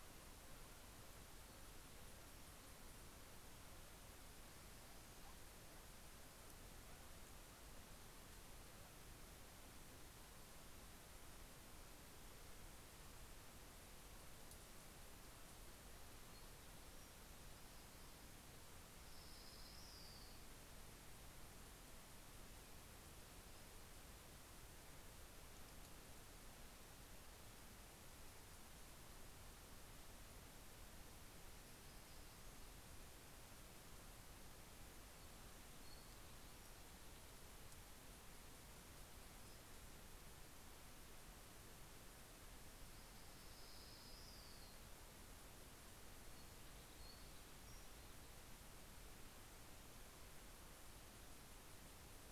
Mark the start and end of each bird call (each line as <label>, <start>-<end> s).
Orange-crowned Warbler (Leiothlypis celata), 18.6-20.9 s
Orange-crowned Warbler (Leiothlypis celata), 42.7-45.3 s
Townsend's Warbler (Setophaga townsendi), 46.0-48.3 s